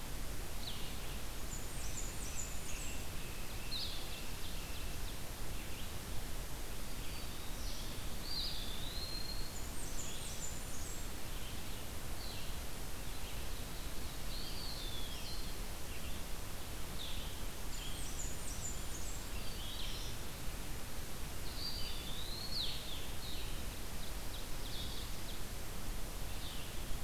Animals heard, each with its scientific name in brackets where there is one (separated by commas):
Blackburnian Warbler (Setophaga fusca), Ovenbird (Seiurus aurocapilla), Blue-headed Vireo (Vireo solitarius), Black-throated Green Warbler (Setophaga virens), Red-eyed Vireo (Vireo olivaceus), Eastern Wood-Pewee (Contopus virens), Red Squirrel (Tamiasciurus hudsonicus)